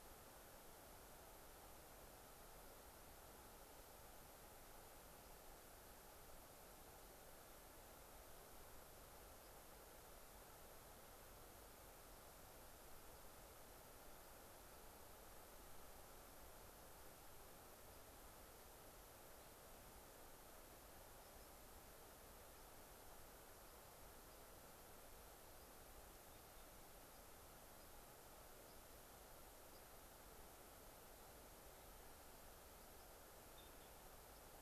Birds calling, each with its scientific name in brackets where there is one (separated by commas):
unidentified bird, White-crowned Sparrow (Zonotrichia leucophrys)